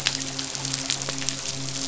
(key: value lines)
label: biophony, midshipman
recorder: SoundTrap 500